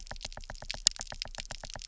{"label": "biophony, knock", "recorder": "SoundTrap 300"}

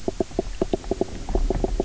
{"label": "biophony, knock croak", "recorder": "SoundTrap 300"}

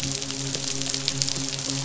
{"label": "biophony, midshipman", "recorder": "SoundTrap 500"}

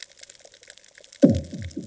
{"label": "anthrophony, bomb", "recorder": "HydroMoth"}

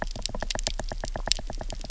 {"label": "biophony, knock", "recorder": "SoundTrap 300"}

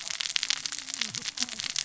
{"label": "biophony, cascading saw", "recorder": "SoundTrap 600 or HydroMoth"}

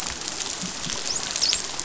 {"label": "biophony, dolphin", "recorder": "SoundTrap 500"}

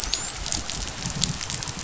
{"label": "biophony, dolphin", "recorder": "SoundTrap 500"}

